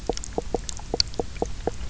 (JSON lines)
{"label": "biophony, knock croak", "recorder": "SoundTrap 300"}